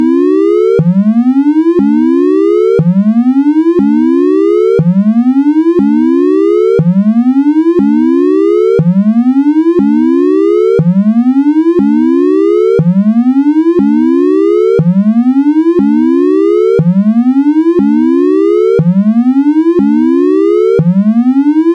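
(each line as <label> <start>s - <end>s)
A loud siren alarm rises and falls steadily, repeating continuously. 0.8s - 19.3s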